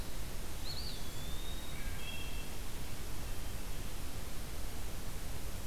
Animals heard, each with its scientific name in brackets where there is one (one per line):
Wood Thrush (Hylocichla mustelina)
Eastern Wood-Pewee (Contopus virens)